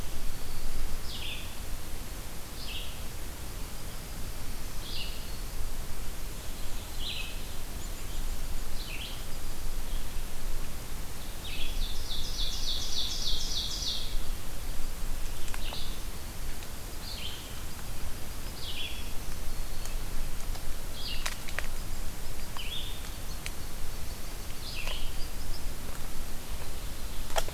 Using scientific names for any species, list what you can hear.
Vireo olivaceus, Seiurus aurocapilla, Setophaga virens